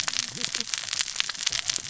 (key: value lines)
label: biophony, cascading saw
recorder: SoundTrap 600 or HydroMoth